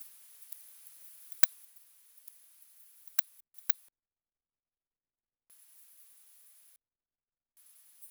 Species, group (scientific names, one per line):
Poecilimon hamatus
Orthoptera